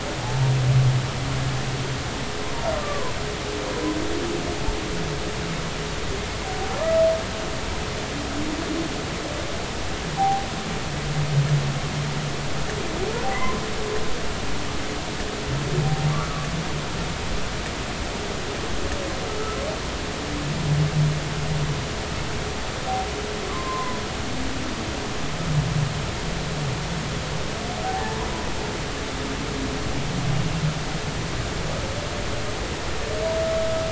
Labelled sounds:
2.8	3.1	humpback whale, 0.93 to 1.2 kHz
6.8	7.0	humpback whale, 1.0 to 1.3 kHz
10.2	10.5	humpback whale, 0.80 to 0.86 kHz
13.4	13.6	humpback whale, 0.96 to 1.1 kHz
16.1	16.5	humpback whale, 1.0 to 1.4 kHz
23.5	24.0	humpback whale, 0.96 to 1.2 kHz
27.8	28.2	humpback whale, 0.80 to 0.93 kHz

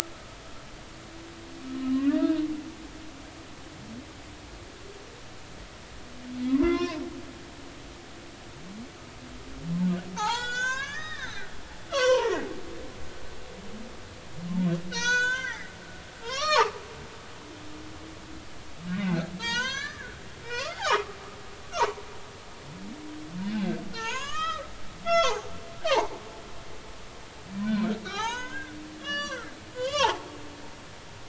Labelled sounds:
1.9	2.2	humpback whale, 1.0 to 1.2 kHz
6.5	7.0	humpback whale, 0.93 to 3.6 kHz
10.2	12.3	humpback whale, 0.80 to 7.5 kHz
14.9	15.7	humpback whale, 0.90 to 7.6 kHz
16.2	16.8	humpback whale, 0.80 to 6.0 kHz
19.0	20.2	humpback whale, 0.86 to 7.6 kHz
20.4	21.2	humpback whale, 0.80 to 2.1 kHz
21.7	22.0	humpback whale, 0.83 to 1.5 kHz
23.5	24.6	humpback whale, 0.83 to 7.0 kHz
25.0	25.5	humpback whale, 0.80 to 7.5 kHz
25.9	26.1	humpback whale, 0.80 to 2.3 kHz
27.6	28.7	humpback whale, 0.80 to 6.9 kHz
29.0	29.5	humpback whale, 0.99 to 6.0 kHz
29.7	30.4	humpback whale, 0.80 to 7.6 kHz

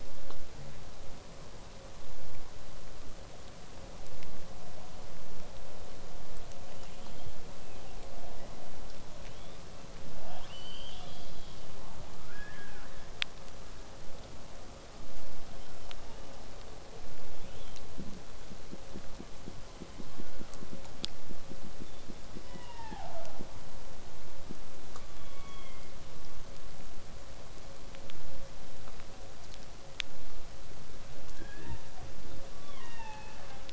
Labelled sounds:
0.0	5.0	vessel noise, 0 to 8.0 kHz
6.6	8.6	killer whale, southern resident, 1.0 to 3.6 kHz
9.2	9.6	killer whale, southern resident, 1.2 to 3.7 kHz
10.1	11.7	killer whale, southern resident, 0.31 to 7.6 kHz
12.3	13.1	killer whale, southern resident, 1.0 to 3.8 kHz
15.5	16.5	killer whale, southern resident, 1.0 to 3.7 kHz
17.3	17.8	killer whale, southern resident, 1.2 to 3.7 kHz
19.6	20.8	killer whale, southern resident, call S01, 0.73 to 5.4 kHz
25.0	26.0	killer whale, southern resident, call S16, 0.93 to 4.7 kHz
31.3	32.0	killer whale, southern resident, 1.4 to 4.3 kHz
32.5	33.7	killer whale, southern resident, 0.43 to 6.0 kHz

